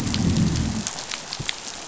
{"label": "biophony, growl", "recorder": "SoundTrap 500"}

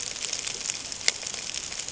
{"label": "ambient", "recorder": "HydroMoth"}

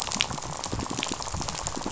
{"label": "biophony, rattle", "recorder": "SoundTrap 500"}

